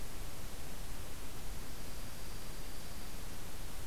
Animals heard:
Dark-eyed Junco (Junco hyemalis)

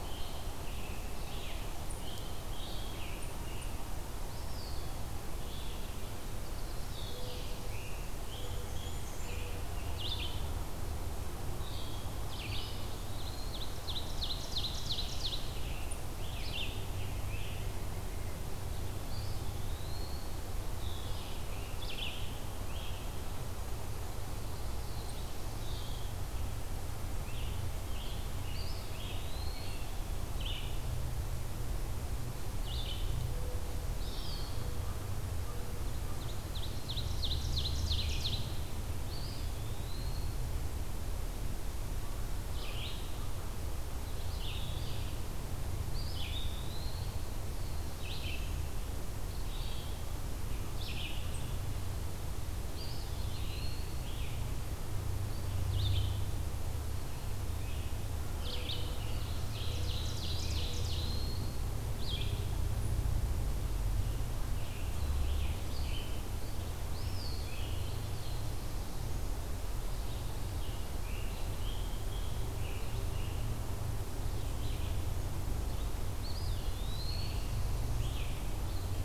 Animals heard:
Blackburnian Warbler (Setophaga fusca)
Mourning Dove (Zenaida macroura)
Eastern Wood-Pewee (Contopus virens)
Ovenbird (Seiurus aurocapilla)
Red-eyed Vireo (Vireo olivaceus)
Black-throated Blue Warbler (Setophaga caerulescens)
Scarlet Tanager (Piranga olivacea)

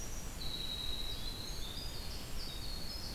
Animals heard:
Red-eyed Vireo (Vireo olivaceus)
Winter Wren (Troglodytes hiemalis)

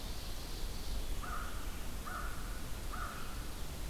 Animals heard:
Ovenbird (Seiurus aurocapilla)
American Crow (Corvus brachyrhynchos)

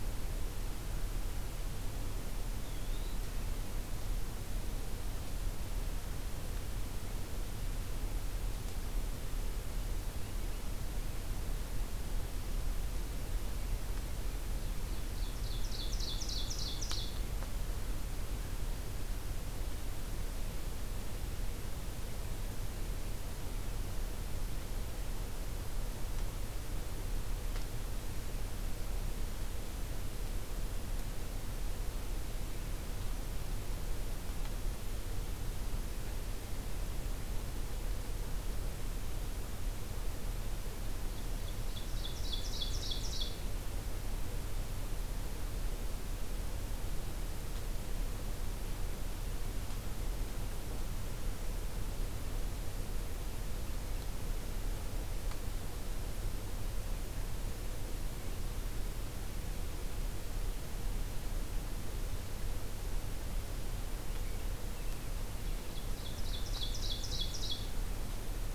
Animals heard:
Ovenbird (Seiurus aurocapilla)
Eastern Wood-Pewee (Contopus virens)

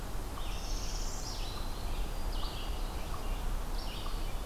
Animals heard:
Red-eyed Vireo (Vireo olivaceus)
Northern Parula (Setophaga americana)
unknown mammal
Black-throated Green Warbler (Setophaga virens)
Eastern Wood-Pewee (Contopus virens)

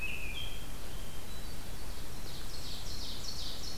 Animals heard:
Hermit Thrush (Catharus guttatus)
Ovenbird (Seiurus aurocapilla)
American Robin (Turdus migratorius)

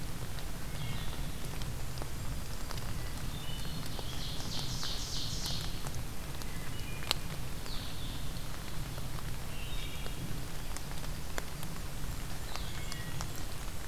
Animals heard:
Blue-headed Vireo (Vireo solitarius)
Blackburnian Warbler (Setophaga fusca)
Ovenbird (Seiurus aurocapilla)
Wood Thrush (Hylocichla mustelina)

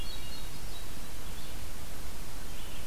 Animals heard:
Red-eyed Vireo (Vireo olivaceus)
Hermit Thrush (Catharus guttatus)

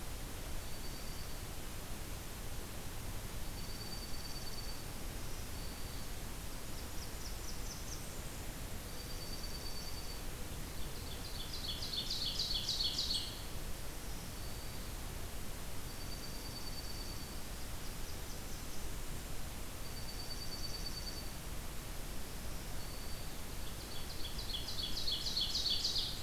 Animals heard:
Ovenbird (Seiurus aurocapilla)
Black-throated Green Warbler (Setophaga virens)
Blackburnian Warbler (Setophaga fusca)
Dark-eyed Junco (Junco hyemalis)

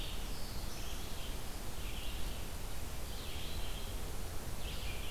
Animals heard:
Black-throated Blue Warbler (Setophaga caerulescens)
Red-eyed Vireo (Vireo olivaceus)

